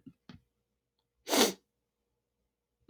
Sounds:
Sniff